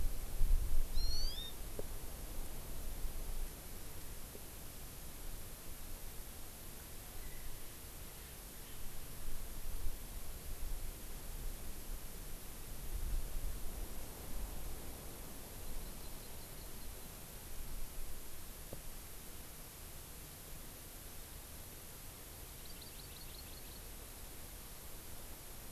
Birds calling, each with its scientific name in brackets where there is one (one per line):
Erckel's Francolin (Pternistis erckelii)
Hawaii Amakihi (Chlorodrepanis virens)